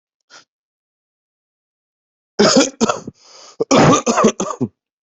{"expert_labels": [{"quality": "ok", "cough_type": "unknown", "dyspnea": false, "wheezing": false, "stridor": false, "choking": false, "congestion": false, "nothing": true, "diagnosis": "lower respiratory tract infection", "severity": "mild"}], "age": 39, "gender": "male", "respiratory_condition": false, "fever_muscle_pain": false, "status": "healthy"}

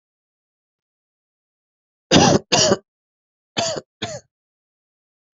{"expert_labels": [{"quality": "ok", "cough_type": "dry", "dyspnea": false, "wheezing": false, "stridor": false, "choking": false, "congestion": false, "nothing": true, "diagnosis": "COVID-19", "severity": "mild"}], "age": 31, "gender": "male", "respiratory_condition": true, "fever_muscle_pain": true, "status": "COVID-19"}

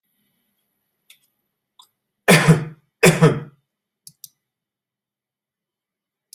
{"expert_labels": [{"quality": "good", "cough_type": "dry", "dyspnea": false, "wheezing": false, "stridor": false, "choking": false, "congestion": false, "nothing": true, "diagnosis": "healthy cough", "severity": "pseudocough/healthy cough"}], "age": 66, "gender": "male", "respiratory_condition": false, "fever_muscle_pain": false, "status": "COVID-19"}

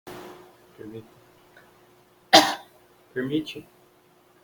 {"expert_labels": [{"quality": "ok", "cough_type": "unknown", "dyspnea": false, "wheezing": false, "stridor": false, "choking": false, "congestion": false, "nothing": true, "diagnosis": "healthy cough", "severity": "pseudocough/healthy cough"}]}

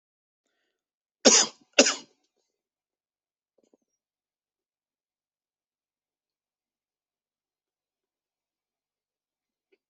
{"expert_labels": [{"quality": "good", "cough_type": "dry", "dyspnea": false, "wheezing": false, "stridor": false, "choking": false, "congestion": false, "nothing": true, "diagnosis": "upper respiratory tract infection", "severity": "mild"}]}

